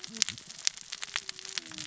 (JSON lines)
{"label": "biophony, cascading saw", "recorder": "SoundTrap 600 or HydroMoth"}